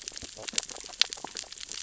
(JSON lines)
{"label": "biophony, sea urchins (Echinidae)", "recorder": "SoundTrap 600 or HydroMoth"}